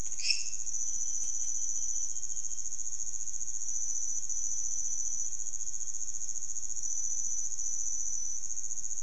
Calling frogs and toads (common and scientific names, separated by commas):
lesser tree frog (Dendropsophus minutus)